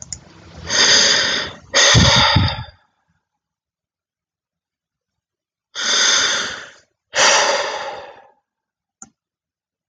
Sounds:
Sigh